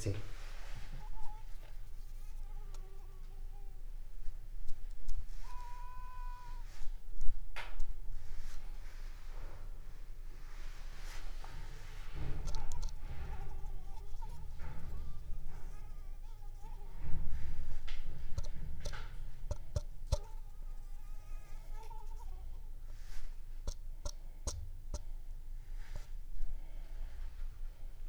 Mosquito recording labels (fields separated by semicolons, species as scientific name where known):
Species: Anopheles arabiensis; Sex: female; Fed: unfed; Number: one; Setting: cup